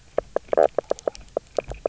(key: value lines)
label: biophony, knock croak
recorder: SoundTrap 300